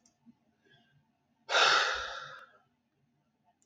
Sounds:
Sigh